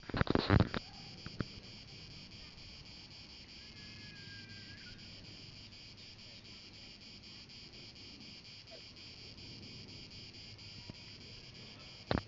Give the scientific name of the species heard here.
Cicada orni